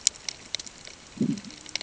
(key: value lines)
label: ambient
recorder: HydroMoth